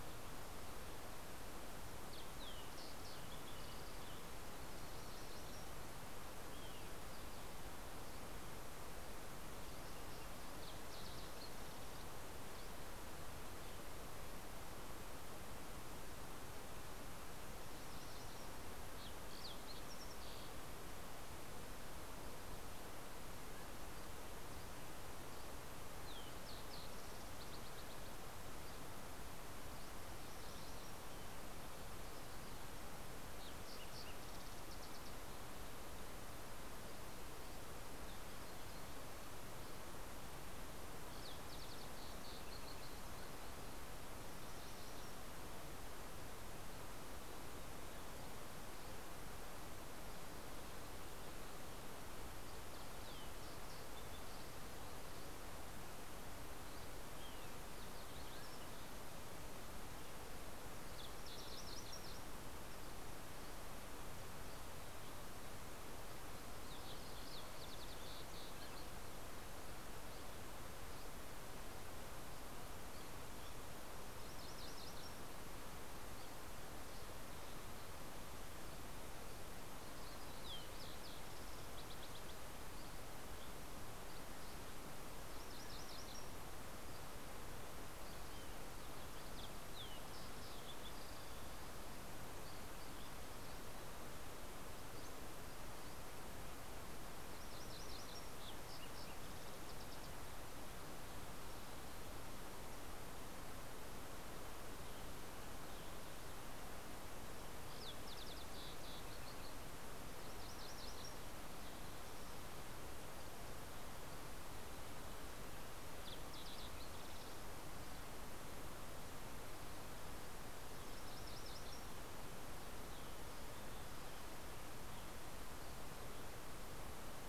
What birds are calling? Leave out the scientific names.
Fox Sparrow, MacGillivray's Warbler, Olive-sided Flycatcher, Green-tailed Towhee, Dusky Flycatcher, Mountain Quail, Western Tanager